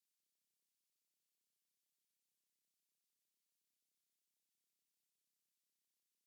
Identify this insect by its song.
Steropleurus andalusius, an orthopteran